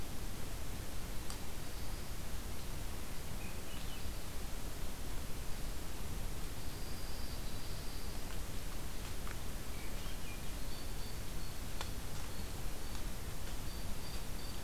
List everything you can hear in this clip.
Swainson's Thrush, Dark-eyed Junco, Blue Jay